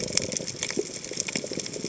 {"label": "biophony", "recorder": "HydroMoth"}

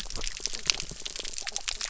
{"label": "biophony", "recorder": "SoundTrap 300"}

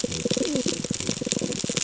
{"label": "ambient", "recorder": "HydroMoth"}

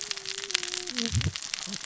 {"label": "biophony, cascading saw", "recorder": "SoundTrap 600 or HydroMoth"}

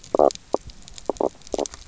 {"label": "biophony, knock croak", "recorder": "SoundTrap 300"}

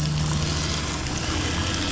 {"label": "anthrophony, boat engine", "recorder": "SoundTrap 500"}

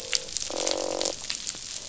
{"label": "biophony, croak", "recorder": "SoundTrap 500"}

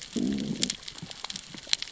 {"label": "biophony, growl", "recorder": "SoundTrap 600 or HydroMoth"}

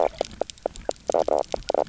{"label": "biophony, knock croak", "recorder": "SoundTrap 300"}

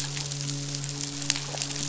{"label": "biophony, midshipman", "recorder": "SoundTrap 500"}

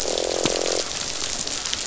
{"label": "biophony, croak", "recorder": "SoundTrap 500"}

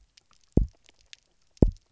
{"label": "biophony, double pulse", "recorder": "SoundTrap 300"}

